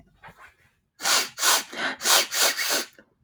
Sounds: Sniff